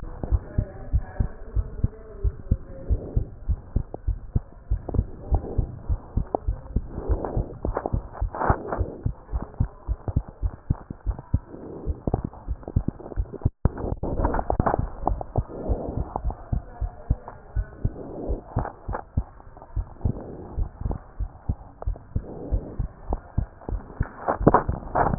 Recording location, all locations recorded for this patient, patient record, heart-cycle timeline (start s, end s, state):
pulmonary valve (PV)
aortic valve (AV)+pulmonary valve (PV)+tricuspid valve (TV)+mitral valve (MV)
#Age: Child
#Sex: Female
#Height: 102.0 cm
#Weight: 15.7 kg
#Pregnancy status: False
#Murmur: Present
#Murmur locations: aortic valve (AV)+mitral valve (MV)
#Most audible location: mitral valve (MV)
#Systolic murmur timing: Early-systolic
#Systolic murmur shape: Plateau
#Systolic murmur grading: I/VI
#Systolic murmur pitch: Low
#Systolic murmur quality: Blowing
#Diastolic murmur timing: nan
#Diastolic murmur shape: nan
#Diastolic murmur grading: nan
#Diastolic murmur pitch: nan
#Diastolic murmur quality: nan
#Outcome: Normal
#Campaign: 2015 screening campaign
0.00	0.24	diastole
0.24	0.42	S1
0.42	0.54	systole
0.54	0.68	S2
0.68	0.90	diastole
0.90	1.04	S1
1.04	1.16	systole
1.16	1.30	S2
1.30	1.54	diastole
1.54	1.68	S1
1.68	1.78	systole
1.78	1.94	S2
1.94	2.22	diastole
2.22	2.34	S1
2.34	2.48	systole
2.48	2.62	S2
2.62	2.84	diastole
2.84	3.02	S1
3.02	3.14	systole
3.14	3.28	S2
3.28	3.46	diastole
3.46	3.60	S1
3.60	3.72	systole
3.72	3.84	S2
3.84	4.06	diastole
4.06	4.20	S1
4.20	4.32	systole
4.32	4.46	S2
4.46	4.70	diastole
4.70	4.84	S1
4.84	4.96	systole
4.96	5.10	S2
5.10	5.30	diastole
5.30	5.44	S1
5.44	5.56	systole
5.56	5.70	S2
5.70	5.88	diastole
5.88	6.00	S1
6.00	6.14	systole
6.14	6.28	S2
6.28	6.46	diastole
6.46	6.60	S1
6.60	6.74	systole
6.74	6.88	S2
6.88	7.08	diastole
7.08	7.22	S1
7.22	7.34	systole
7.34	7.48	S2
7.48	7.66	diastole
7.66	7.76	S1
7.76	7.92	systole
7.92	8.04	S2
8.04	8.20	diastole
8.20	8.32	S1
8.32	8.48	systole
8.48	8.58	S2
8.58	8.78	diastole
8.78	8.88	S1
8.88	9.04	systole
9.04	9.14	S2
9.14	9.31	diastole
9.31	9.46	S1
9.46	9.57	systole
9.57	9.70	S2
9.70	9.86	diastole
9.86	9.98	S1
9.98	10.14	systole
10.14	10.24	S2
10.24	10.40	diastole
10.40	10.52	S1
10.52	10.66	systole
10.66	10.80	S2
10.80	11.06	diastole
11.06	11.18	S1
11.18	11.30	systole
11.30	11.44	S2
11.44	11.84	diastole
11.84	11.99	S1
11.99	12.10	systole
12.10	12.22	S2
12.22	12.45	diastole
12.45	12.58	S1
12.58	12.74	systole
12.74	12.88	S2
12.88	13.16	diastole
13.16	13.28	S1
13.28	13.42	systole
13.42	13.56	S2
13.56	13.82	diastole
13.82	13.97	S1
13.97	14.16	systole
14.16	14.32	S2
14.32	14.50	diastole
14.50	14.68	S1
14.68	14.78	systole
14.78	14.90	S2
14.90	15.06	diastole
15.06	15.22	S1
15.22	15.36	systole
15.36	15.48	S2
15.48	15.66	diastole
15.66	15.80	S1
15.80	15.96	systole
15.96	16.08	S2
16.08	16.24	diastole
16.24	16.36	S1
16.36	16.48	systole
16.48	16.64	S2
16.64	16.79	diastole
16.79	16.92	S1
16.92	17.10	systole
17.10	17.26	S2
17.26	17.54	diastole
17.54	17.66	S1
17.66	17.81	systole
17.81	17.96	S2
17.96	18.22	diastole
18.22	18.40	S1
18.40	18.55	systole
18.55	18.68	S2
18.68	18.86	diastole
18.86	19.00	S1
19.00	19.14	systole
19.14	19.26	S2
19.26	19.52	diastole